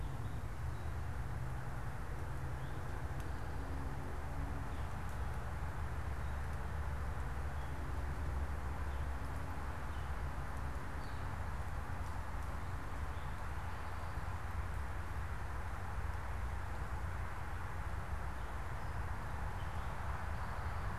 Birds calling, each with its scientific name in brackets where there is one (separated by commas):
unidentified bird, Gray Catbird (Dumetella carolinensis)